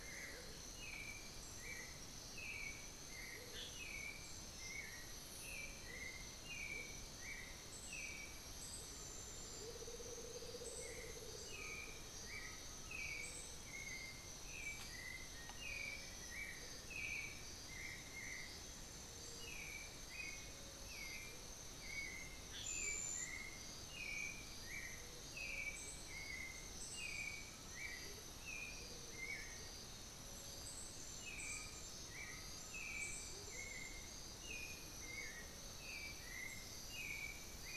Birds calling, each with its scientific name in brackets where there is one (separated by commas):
Buff-throated Woodcreeper (Xiphorhynchus guttatus), Amazonian Motmot (Momotus momota), Black-billed Thrush (Turdus ignobilis), Undulated Tinamou (Crypturellus undulatus), Black-faced Antthrush (Formicarius analis)